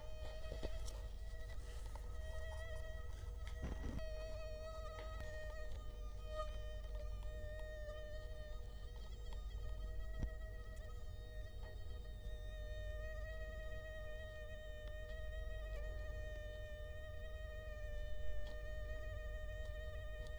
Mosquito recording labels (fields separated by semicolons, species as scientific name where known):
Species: Culex quinquefasciatus; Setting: cup